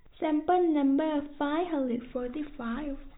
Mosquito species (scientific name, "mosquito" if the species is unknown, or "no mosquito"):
no mosquito